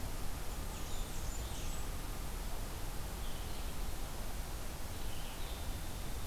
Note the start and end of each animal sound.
[0.00, 6.26] Red-eyed Vireo (Vireo olivaceus)
[0.31, 2.05] Blackburnian Warbler (Setophaga fusca)

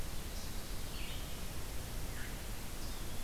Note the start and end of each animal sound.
[0.00, 3.23] Red-eyed Vireo (Vireo olivaceus)
[2.60, 3.23] Eastern Wood-Pewee (Contopus virens)

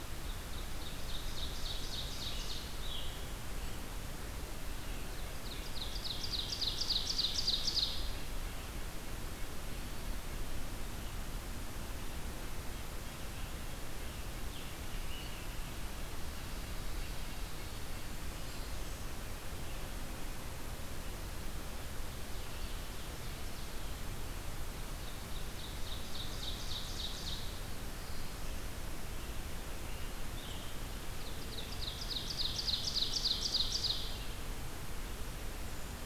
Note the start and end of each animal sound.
[0.00, 2.78] Ovenbird (Seiurus aurocapilla)
[1.86, 4.05] Scarlet Tanager (Piranga olivacea)
[5.00, 8.57] Ovenbird (Seiurus aurocapilla)
[12.29, 17.17] Red-breasted Nuthatch (Sitta canadensis)
[13.83, 15.46] Scarlet Tanager (Piranga olivacea)
[17.68, 19.24] Blackburnian Warbler (Setophaga fusca)
[21.83, 23.98] Ovenbird (Seiurus aurocapilla)
[24.51, 27.49] Ovenbird (Seiurus aurocapilla)
[27.34, 28.79] Black-throated Blue Warbler (Setophaga caerulescens)
[29.68, 30.76] Scarlet Tanager (Piranga olivacea)
[30.94, 34.22] Ovenbird (Seiurus aurocapilla)

